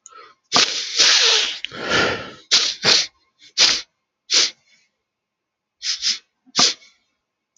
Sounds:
Sniff